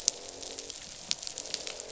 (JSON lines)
{"label": "biophony, croak", "recorder": "SoundTrap 500"}